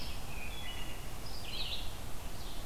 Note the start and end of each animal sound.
[0.00, 2.65] Red-eyed Vireo (Vireo olivaceus)
[0.33, 1.00] Wood Thrush (Hylocichla mustelina)

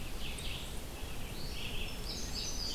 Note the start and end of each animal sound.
[0.00, 2.75] Red-eyed Vireo (Vireo olivaceus)
[1.90, 2.75] Indigo Bunting (Passerina cyanea)

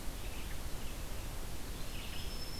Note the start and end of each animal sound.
[0.00, 2.60] Red-eyed Vireo (Vireo olivaceus)
[1.55, 2.60] Black-throated Green Warbler (Setophaga virens)

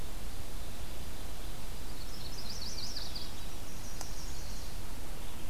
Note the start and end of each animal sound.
[1.88, 3.36] Yellow-rumped Warbler (Setophaga coronata)
[3.68, 4.73] Chestnut-sided Warbler (Setophaga pensylvanica)

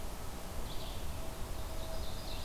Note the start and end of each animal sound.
[0.00, 1.24] Red-eyed Vireo (Vireo olivaceus)
[1.48, 2.44] Ovenbird (Seiurus aurocapilla)

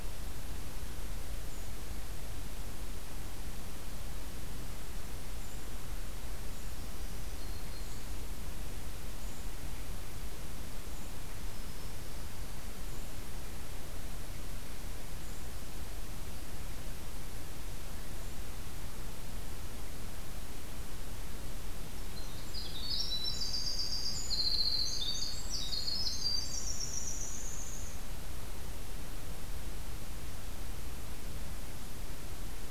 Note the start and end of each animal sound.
[0.00, 18.38] Golden-crowned Kinglet (Regulus satrapa)
[6.54, 8.16] Black-throated Green Warbler (Setophaga virens)
[11.21, 12.11] Black-throated Green Warbler (Setophaga virens)
[22.24, 28.00] Winter Wren (Troglodytes hiemalis)

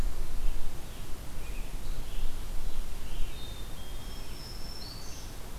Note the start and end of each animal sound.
[0.25, 3.53] Scarlet Tanager (Piranga olivacea)
[3.16, 4.50] Black-capped Chickadee (Poecile atricapillus)
[3.72, 5.58] Black-throated Green Warbler (Setophaga virens)

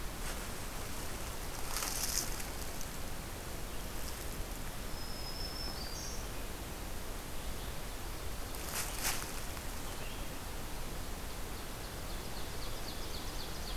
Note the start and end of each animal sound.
[4.54, 6.53] Black-throated Green Warbler (Setophaga virens)
[8.62, 10.54] Scarlet Tanager (Piranga olivacea)
[10.85, 13.76] Ovenbird (Seiurus aurocapilla)

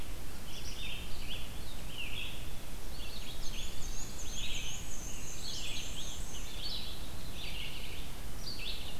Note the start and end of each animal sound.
[0.00, 8.99] Red-eyed Vireo (Vireo olivaceus)
[2.86, 4.18] Eastern Wood-Pewee (Contopus virens)
[3.29, 6.56] Black-and-white Warbler (Mniotilta varia)
[5.02, 7.05] Scarlet Tanager (Piranga olivacea)

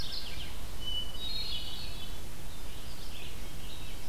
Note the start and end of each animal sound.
[0.00, 0.46] Mourning Warbler (Geothlypis philadelphia)
[0.73, 2.22] Hermit Thrush (Catharus guttatus)
[0.97, 4.08] Red-eyed Vireo (Vireo olivaceus)

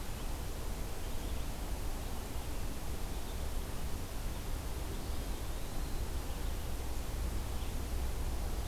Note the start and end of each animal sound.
[4.91, 6.06] Eastern Wood-Pewee (Contopus virens)

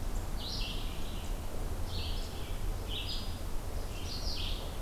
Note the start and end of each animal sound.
[0.00, 4.81] Red-eyed Vireo (Vireo olivaceus)

